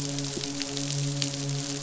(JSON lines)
{"label": "biophony, midshipman", "recorder": "SoundTrap 500"}